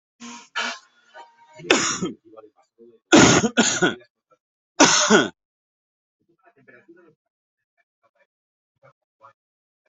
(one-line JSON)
{"expert_labels": [{"quality": "ok", "cough_type": "dry", "dyspnea": false, "wheezing": false, "stridor": false, "choking": false, "congestion": false, "nothing": true, "diagnosis": "healthy cough", "severity": "pseudocough/healthy cough"}], "age": 51, "gender": "female", "respiratory_condition": true, "fever_muscle_pain": true, "status": "symptomatic"}